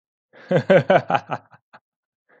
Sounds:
Laughter